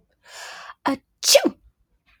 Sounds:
Sneeze